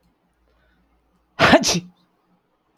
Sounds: Sneeze